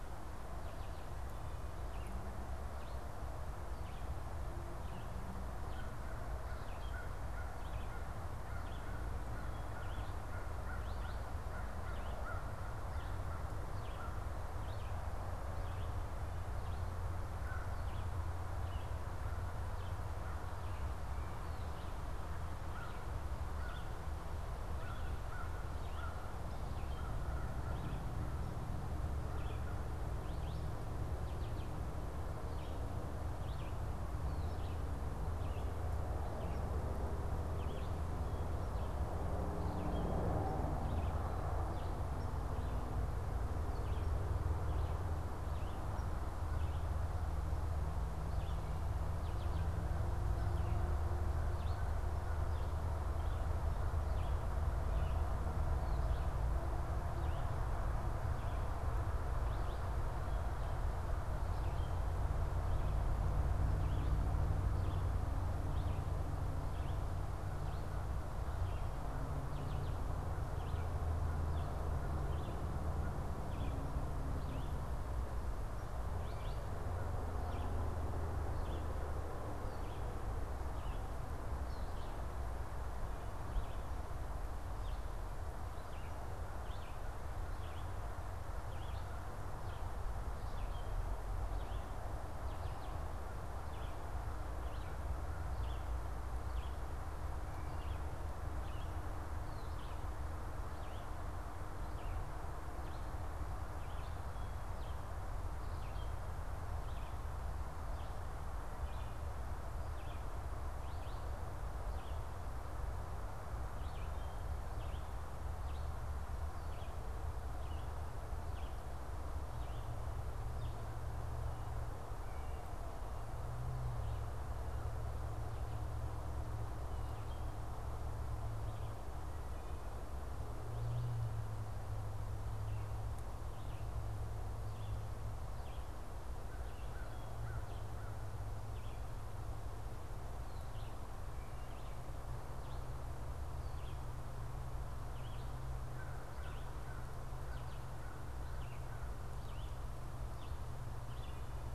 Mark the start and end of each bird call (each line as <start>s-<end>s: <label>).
0.0s-47.0s: Red-eyed Vireo (Vireo olivaceus)
5.4s-14.5s: American Crow (Corvus brachyrhynchos)
17.3s-17.8s: American Crow (Corvus brachyrhynchos)
19.0s-30.0s: American Crow (Corvus brachyrhynchos)
48.1s-106.2s: Red-eyed Vireo (Vireo olivaceus)
49.5s-55.9s: American Crow (Corvus brachyrhynchos)
106.6s-120.0s: Red-eyed Vireo (Vireo olivaceus)
136.5s-151.7s: Red-eyed Vireo (Vireo olivaceus)
136.7s-139.0s: American Crow (Corvus brachyrhynchos)